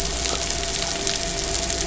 {"label": "biophony, midshipman", "recorder": "SoundTrap 500"}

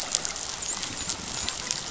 {"label": "biophony, dolphin", "recorder": "SoundTrap 500"}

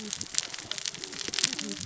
{"label": "biophony, cascading saw", "recorder": "SoundTrap 600 or HydroMoth"}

